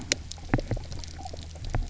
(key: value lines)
label: anthrophony, boat engine
recorder: SoundTrap 300